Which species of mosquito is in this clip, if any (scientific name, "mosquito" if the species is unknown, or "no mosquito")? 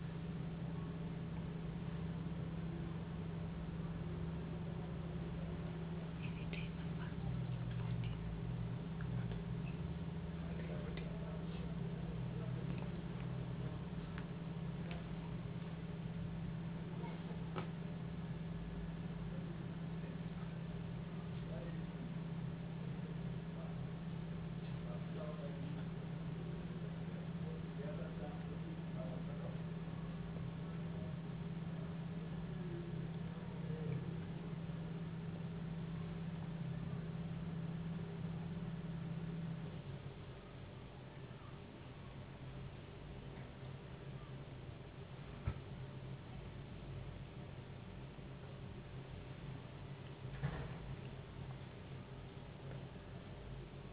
no mosquito